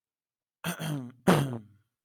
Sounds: Throat clearing